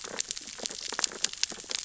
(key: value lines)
label: biophony, sea urchins (Echinidae)
recorder: SoundTrap 600 or HydroMoth